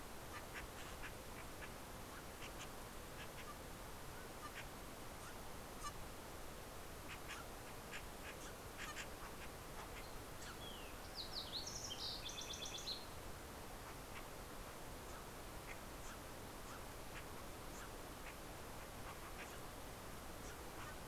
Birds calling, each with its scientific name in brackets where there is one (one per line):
Steller's Jay (Cyanocitta stelleri)
Fox Sparrow (Passerella iliaca)